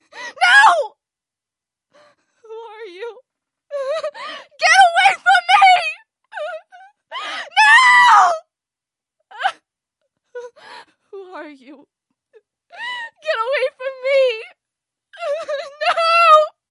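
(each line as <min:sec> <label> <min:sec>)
0:00.0 A woman screams emotionally, sounding scared. 0:16.6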